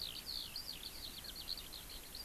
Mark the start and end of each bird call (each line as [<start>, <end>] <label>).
[0.00, 2.24] Eurasian Skylark (Alauda arvensis)